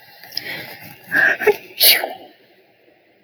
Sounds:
Sneeze